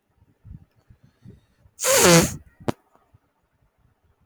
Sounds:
Sneeze